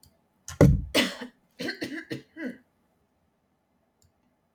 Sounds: Throat clearing